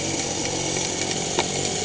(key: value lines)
label: anthrophony, boat engine
recorder: HydroMoth